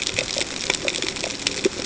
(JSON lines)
{"label": "ambient", "recorder": "HydroMoth"}